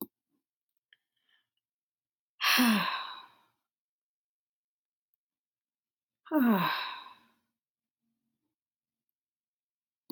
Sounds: Sigh